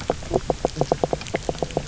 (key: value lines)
label: biophony, knock croak
recorder: SoundTrap 300